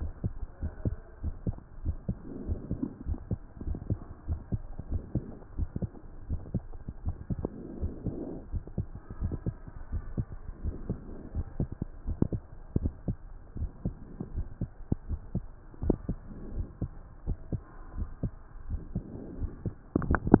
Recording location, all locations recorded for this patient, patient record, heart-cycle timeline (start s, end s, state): aortic valve (AV)
aortic valve (AV)+pulmonary valve (PV)+tricuspid valve (TV)+mitral valve (MV)
#Age: nan
#Sex: Female
#Height: nan
#Weight: nan
#Pregnancy status: True
#Murmur: Absent
#Murmur locations: nan
#Most audible location: nan
#Systolic murmur timing: nan
#Systolic murmur shape: nan
#Systolic murmur grading: nan
#Systolic murmur pitch: nan
#Systolic murmur quality: nan
#Diastolic murmur timing: nan
#Diastolic murmur shape: nan
#Diastolic murmur grading: nan
#Diastolic murmur pitch: nan
#Diastolic murmur quality: nan
#Outcome: Normal
#Campaign: 2015 screening campaign
0.00	0.32	unannotated
0.32	0.62	diastole
0.62	0.72	S1
0.72	0.84	systole
0.84	0.92	S2
0.92	1.22	diastole
1.22	1.34	S1
1.34	1.44	systole
1.44	1.56	S2
1.56	1.86	diastole
1.86	2.00	S1
2.00	2.08	systole
2.08	2.18	S2
2.18	2.48	diastole
2.48	2.62	S1
2.62	2.70	systole
2.70	2.78	S2
2.78	3.08	diastole
3.08	3.22	S1
3.22	3.30	systole
3.30	3.40	S2
3.40	3.70	diastole
3.70	3.82	S1
3.82	3.88	systole
3.88	3.98	S2
3.98	4.28	diastole
4.28	4.42	S1
4.42	4.50	systole
4.50	4.60	S2
4.60	4.90	diastole
4.90	5.06	S1
5.06	5.14	systole
5.14	5.24	S2
5.24	5.58	diastole
5.58	5.72	S1
5.72	5.80	systole
5.80	5.90	S2
5.90	6.28	diastole
6.28	6.42	S1
6.42	6.52	systole
6.52	6.66	S2
6.66	7.04	diastole
7.04	7.16	S1
7.16	7.30	systole
7.30	7.46	S2
7.46	7.82	diastole
7.82	7.96	S1
7.96	8.06	systole
8.06	8.18	S2
8.18	8.50	diastole
8.50	8.64	S1
8.64	8.76	systole
8.76	8.86	S2
8.86	9.20	diastole
9.20	9.38	S1
9.38	9.46	systole
9.46	9.56	S2
9.56	9.90	diastole
9.90	10.04	S1
10.04	10.16	systole
10.16	10.26	S2
10.26	10.62	diastole
10.62	10.76	S1
10.76	10.88	systole
10.88	10.98	S2
10.98	11.34	diastole
11.34	11.48	S1
11.48	11.58	systole
11.58	11.68	S2
11.68	12.06	diastole
12.06	12.18	S1
12.18	12.32	systole
12.32	12.42	S2
12.42	12.76	diastole
12.76	12.94	S1
12.94	13.06	systole
13.06	13.16	S2
13.16	13.60	diastole
13.60	13.72	S1
13.72	13.84	systole
13.84	13.94	S2
13.94	14.34	diastole
14.34	14.48	S1
14.48	14.60	systole
14.60	14.70	S2
14.70	15.08	diastole
15.08	15.20	S1
15.20	15.34	systole
15.34	15.44	S2
15.44	15.80	diastole
15.80	15.98	S1
15.98	16.08	systole
16.08	16.18	S2
16.18	16.54	diastole
16.54	16.68	S1
16.68	16.80	systole
16.80	16.90	S2
16.90	17.24	diastole
17.24	17.38	S1
17.38	17.52	systole
17.52	17.62	S2
17.62	17.96	diastole
17.96	18.10	S1
18.10	18.22	systole
18.22	18.32	S2
18.32	18.68	diastole
18.68	18.82	S1
18.82	18.94	systole
18.94	19.04	S2
19.04	19.38	diastole
19.38	19.52	S1
19.52	19.64	systole
19.64	19.74	S2
19.74	19.87	diastole
19.87	20.40	unannotated